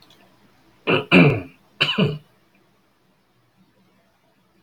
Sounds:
Throat clearing